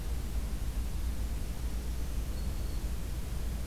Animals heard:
Black-throated Green Warbler (Setophaga virens)

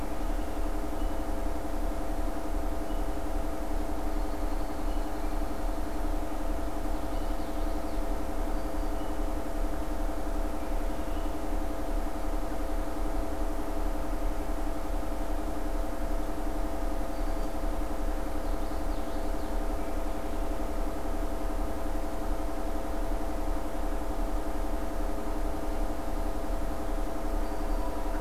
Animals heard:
American Robin (Turdus migratorius), Black-throated Green Warbler (Setophaga virens), Common Yellowthroat (Geothlypis trichas)

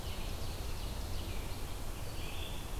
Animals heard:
Red-eyed Vireo (Vireo olivaceus), Ovenbird (Seiurus aurocapilla)

